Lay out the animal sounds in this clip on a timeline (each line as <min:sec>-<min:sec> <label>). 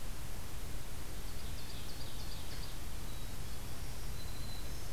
0:01.2-0:02.8 Ovenbird (Seiurus aurocapilla)
0:03.0-0:03.8 Black-capped Chickadee (Poecile atricapillus)
0:03.4-0:04.9 Black-throated Green Warbler (Setophaga virens)